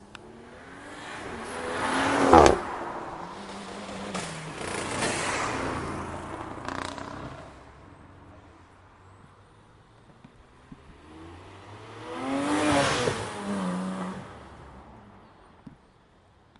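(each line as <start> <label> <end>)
0.6 A car accelerates quickly while passing by, its engine crackling. 3.5
3.6 An accelerating car passes by with a crackling engine noise. 7.7
11.1 A car rapidly accelerates and drives past. 14.6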